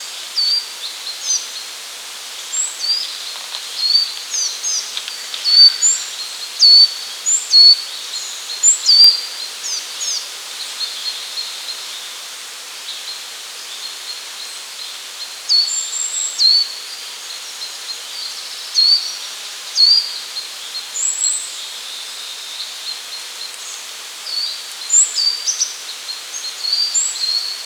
Is there a tiger growling?
no